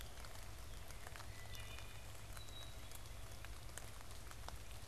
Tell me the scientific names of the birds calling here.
Hylocichla mustelina, Poecile atricapillus